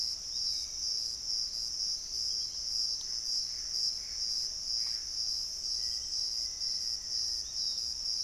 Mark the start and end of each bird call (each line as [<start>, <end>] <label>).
[0.00, 1.85] Hauxwell's Thrush (Turdus hauxwelli)
[0.00, 5.16] Gray Antbird (Cercomacra cinerascens)
[0.00, 8.23] Piratic Flycatcher (Legatus leucophaius)
[5.66, 7.66] Black-faced Antthrush (Formicarius analis)